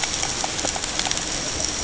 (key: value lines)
label: ambient
recorder: HydroMoth